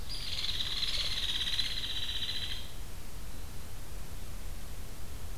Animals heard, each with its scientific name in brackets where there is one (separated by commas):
Hairy Woodpecker (Dryobates villosus)